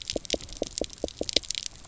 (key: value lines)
label: biophony, knock
recorder: SoundTrap 300